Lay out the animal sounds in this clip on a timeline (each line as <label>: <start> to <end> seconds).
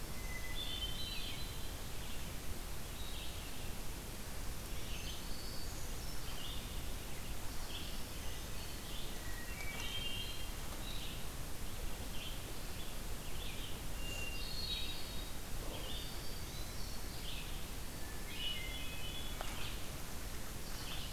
Hermit Thrush (Catharus guttatus): 0.0 to 1.9 seconds
Red-eyed Vireo (Vireo olivaceus): 0.0 to 21.1 seconds
Hermit Thrush (Catharus guttatus): 4.7 to 6.3 seconds
Hermit Thrush (Catharus guttatus): 9.0 to 10.8 seconds
Hermit Thrush (Catharus guttatus): 13.8 to 15.3 seconds
Black-throated Green Warbler (Setophaga virens): 15.7 to 17.3 seconds
Hermit Thrush (Catharus guttatus): 17.9 to 19.6 seconds